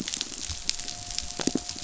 {"label": "biophony", "recorder": "SoundTrap 500"}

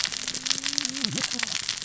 {"label": "biophony, cascading saw", "recorder": "SoundTrap 600 or HydroMoth"}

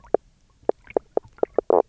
{"label": "biophony, knock croak", "recorder": "SoundTrap 300"}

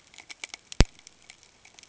{"label": "ambient", "recorder": "HydroMoth"}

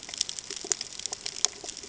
{"label": "ambient", "recorder": "HydroMoth"}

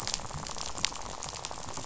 {"label": "biophony, rattle", "recorder": "SoundTrap 500"}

